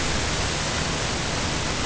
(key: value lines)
label: ambient
recorder: HydroMoth